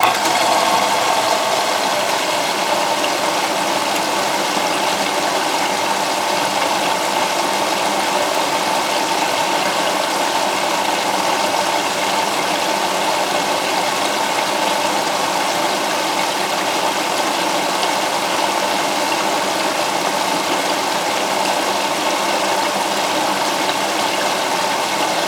Is this an animal?
no